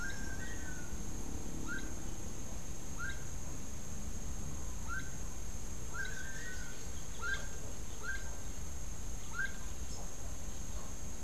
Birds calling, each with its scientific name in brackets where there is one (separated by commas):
Long-tailed Manakin (Chiroxiphia linearis), Gray-headed Chachalaca (Ortalis cinereiceps)